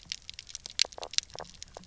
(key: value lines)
label: biophony, knock croak
recorder: SoundTrap 300